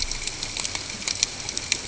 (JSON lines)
{"label": "ambient", "recorder": "HydroMoth"}